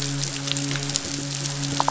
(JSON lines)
{"label": "biophony", "recorder": "SoundTrap 500"}
{"label": "biophony, midshipman", "recorder": "SoundTrap 500"}